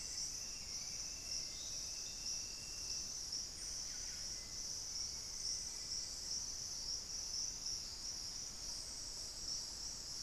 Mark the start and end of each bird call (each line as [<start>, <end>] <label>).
[0.00, 1.84] Hauxwell's Thrush (Turdus hauxwelli)
[0.84, 2.25] Plumbeous Pigeon (Patagioenas plumbea)
[3.44, 4.25] Buff-breasted Wren (Cantorchilus leucotis)
[4.34, 6.14] Black-faced Antthrush (Formicarius analis)
[4.95, 10.14] Thrush-like Wren (Campylorhynchus turdinus)